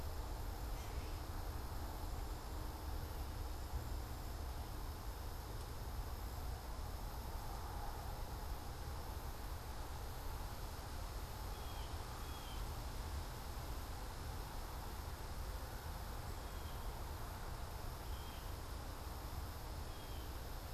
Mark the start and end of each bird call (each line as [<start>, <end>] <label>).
[0.53, 1.43] Gray Catbird (Dumetella carolinensis)
[11.33, 12.83] Blue Jay (Cyanocitta cristata)
[16.13, 20.73] Blue Jay (Cyanocitta cristata)